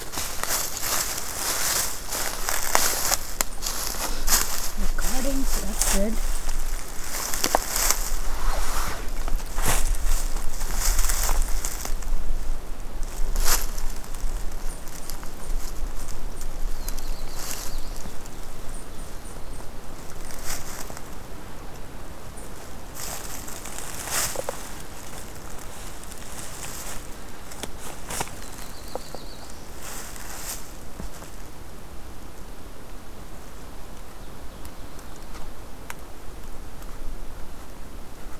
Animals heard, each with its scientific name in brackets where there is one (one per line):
Black-throated Blue Warbler (Setophaga caerulescens)
Eastern Chipmunk (Tamias striatus)
Ovenbird (Seiurus aurocapilla)